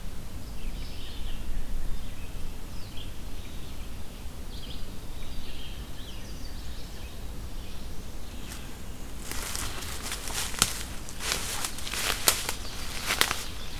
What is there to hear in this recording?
Red-eyed Vireo, Hermit Thrush, Chestnut-sided Warbler